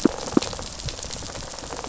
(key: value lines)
label: biophony, rattle response
recorder: SoundTrap 500